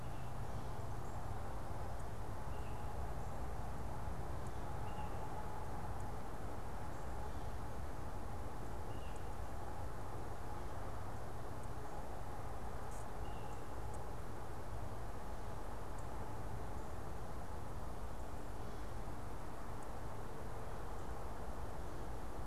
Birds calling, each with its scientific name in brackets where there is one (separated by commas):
unidentified bird